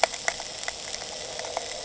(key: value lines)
label: anthrophony, boat engine
recorder: HydroMoth